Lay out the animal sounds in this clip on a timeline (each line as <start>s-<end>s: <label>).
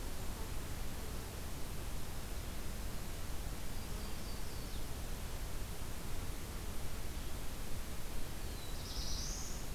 3.5s-4.9s: Yellow-rumped Warbler (Setophaga coronata)
8.3s-9.7s: Black-throated Blue Warbler (Setophaga caerulescens)